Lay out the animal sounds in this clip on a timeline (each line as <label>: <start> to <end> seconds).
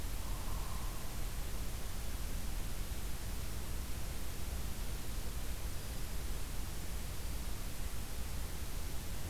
Hairy Woodpecker (Dryobates villosus): 0.0 to 1.1 seconds